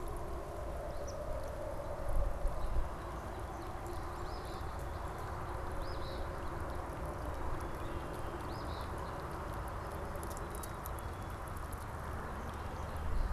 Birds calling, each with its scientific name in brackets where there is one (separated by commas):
Eastern Phoebe (Sayornis phoebe), Black-capped Chickadee (Poecile atricapillus), Red-winged Blackbird (Agelaius phoeniceus)